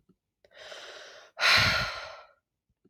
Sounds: Sigh